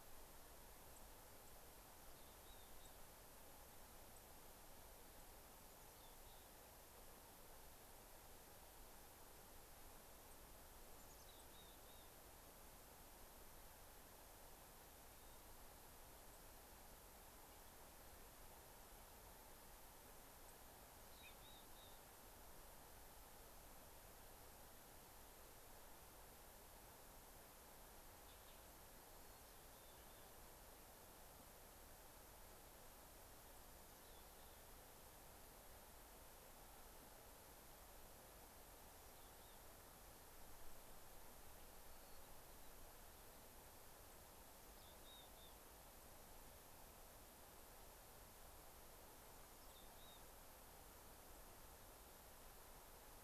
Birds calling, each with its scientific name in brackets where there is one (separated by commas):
Mountain Chickadee (Poecile gambeli), American Robin (Turdus migratorius), White-crowned Sparrow (Zonotrichia leucophrys)